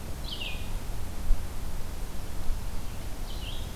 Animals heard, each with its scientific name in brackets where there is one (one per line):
Red-eyed Vireo (Vireo olivaceus)